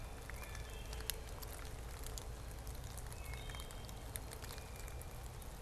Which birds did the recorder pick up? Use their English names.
Blue Jay, Wood Thrush